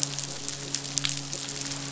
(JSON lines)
{"label": "biophony, midshipman", "recorder": "SoundTrap 500"}